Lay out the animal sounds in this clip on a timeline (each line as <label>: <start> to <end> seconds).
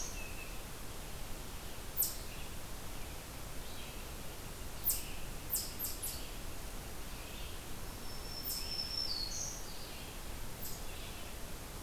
Red-eyed Vireo (Vireo olivaceus): 0.0 to 11.8 seconds
Eastern Chipmunk (Tamias striatus): 4.6 to 6.4 seconds
Black-throated Green Warbler (Setophaga virens): 7.9 to 9.7 seconds